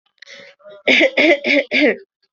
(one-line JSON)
{"expert_labels": [{"quality": "ok", "cough_type": "dry", "dyspnea": false, "wheezing": false, "stridor": false, "choking": false, "congestion": false, "nothing": true, "diagnosis": "healthy cough", "severity": "pseudocough/healthy cough"}], "age": 23, "gender": "female", "respiratory_condition": true, "fever_muscle_pain": false, "status": "COVID-19"}